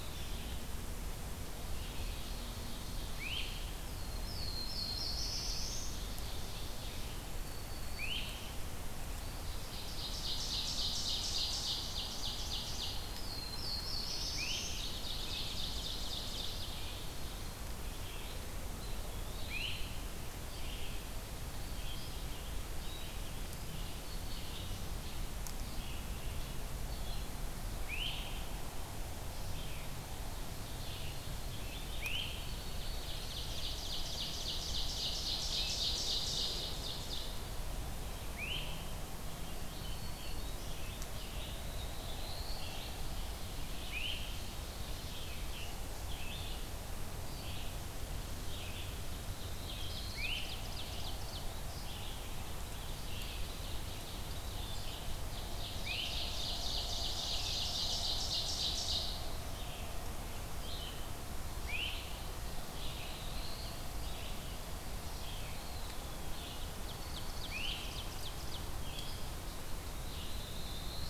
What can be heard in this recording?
Black-throated Green Warbler, Red-eyed Vireo, Ovenbird, Great Crested Flycatcher, Black-throated Blue Warbler, Eastern Wood-Pewee, Scarlet Tanager, Chipping Sparrow